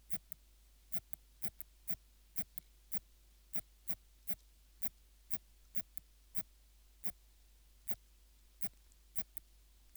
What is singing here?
Phaneroptera falcata, an orthopteran